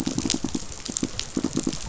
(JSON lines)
{"label": "biophony, pulse", "recorder": "SoundTrap 500"}